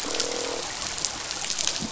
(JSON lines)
{"label": "biophony, croak", "recorder": "SoundTrap 500"}